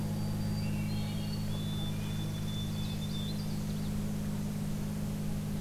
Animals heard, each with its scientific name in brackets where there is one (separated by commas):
Canada Warbler (Cardellina canadensis), Swainson's Thrush (Catharus ustulatus), White-throated Sparrow (Zonotrichia albicollis), Northern Parula (Setophaga americana)